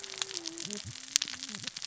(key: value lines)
label: biophony, cascading saw
recorder: SoundTrap 600 or HydroMoth